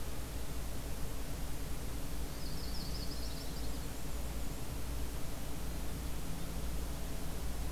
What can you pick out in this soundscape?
Yellow-rumped Warbler, Black-and-white Warbler